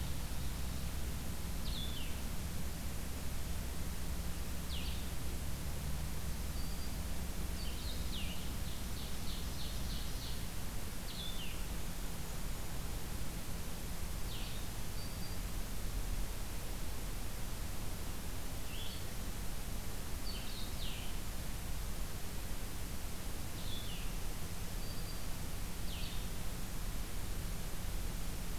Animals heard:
Blue-headed Vireo (Vireo solitarius), Black-throated Green Warbler (Setophaga virens), Ovenbird (Seiurus aurocapilla), Golden-crowned Kinglet (Regulus satrapa)

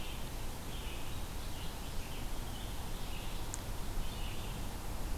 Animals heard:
Red-eyed Vireo (Vireo olivaceus)

